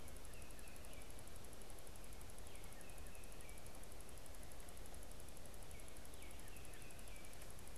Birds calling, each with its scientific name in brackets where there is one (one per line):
Baltimore Oriole (Icterus galbula)